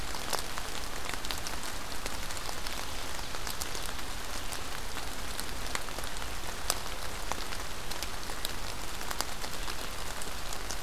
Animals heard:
forest ambience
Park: Marsh-Billings-Rockefeller National Historical Park